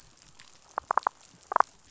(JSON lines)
{"label": "biophony", "recorder": "SoundTrap 500"}
{"label": "biophony, damselfish", "recorder": "SoundTrap 500"}